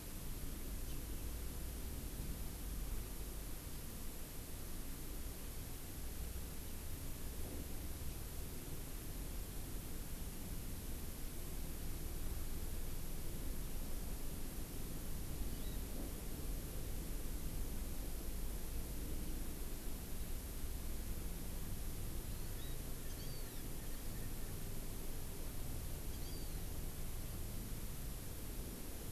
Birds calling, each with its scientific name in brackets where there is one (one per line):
Hawaii Amakihi (Chlorodrepanis virens)
Erckel's Francolin (Pternistis erckelii)